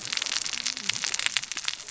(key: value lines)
label: biophony, cascading saw
recorder: SoundTrap 600 or HydroMoth